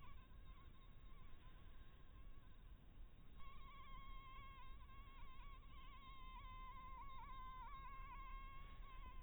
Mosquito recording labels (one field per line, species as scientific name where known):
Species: mosquito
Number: one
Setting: cup